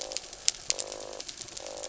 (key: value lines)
label: anthrophony, mechanical
recorder: SoundTrap 300

label: biophony
recorder: SoundTrap 300